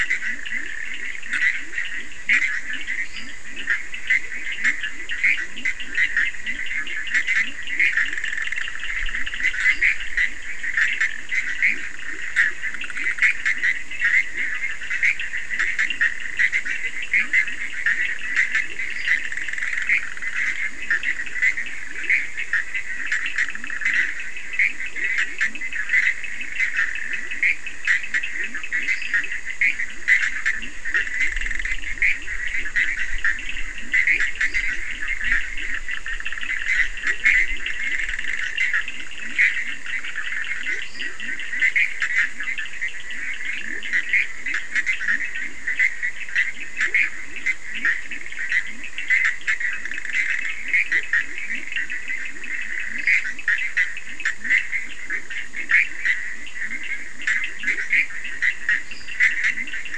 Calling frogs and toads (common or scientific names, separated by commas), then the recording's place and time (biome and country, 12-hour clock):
Leptodactylus latrans, Bischoff's tree frog, Cochran's lime tree frog, lesser tree frog
Atlantic Forest, Brazil, 2:30am